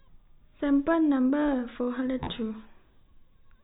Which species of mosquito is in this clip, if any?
no mosquito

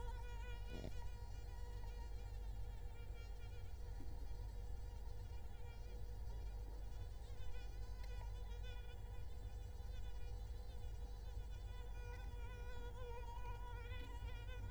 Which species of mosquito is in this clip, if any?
Culex quinquefasciatus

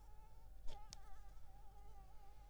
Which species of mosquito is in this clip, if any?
Anopheles arabiensis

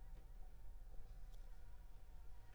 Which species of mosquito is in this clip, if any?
Anopheles gambiae s.l.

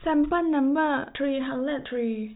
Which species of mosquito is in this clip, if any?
no mosquito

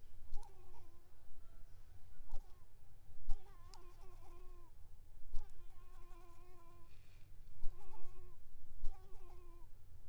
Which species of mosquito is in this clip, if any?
Anopheles coustani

